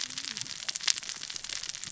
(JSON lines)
{"label": "biophony, cascading saw", "recorder": "SoundTrap 600 or HydroMoth"}